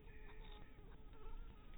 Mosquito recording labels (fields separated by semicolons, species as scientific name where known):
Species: Anopheles harrisoni; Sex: female; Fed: unfed; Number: one; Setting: cup